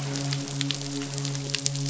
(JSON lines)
{"label": "biophony, midshipman", "recorder": "SoundTrap 500"}